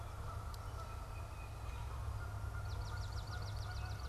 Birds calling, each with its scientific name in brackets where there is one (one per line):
Tufted Titmouse (Baeolophus bicolor)
Canada Goose (Branta canadensis)
Swamp Sparrow (Melospiza georgiana)